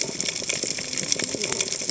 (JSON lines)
{"label": "biophony, cascading saw", "recorder": "HydroMoth"}